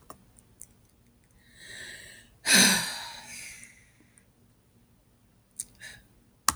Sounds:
Sigh